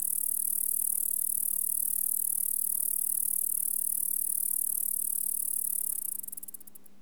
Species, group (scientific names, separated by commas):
Bradyporus dasypus, Orthoptera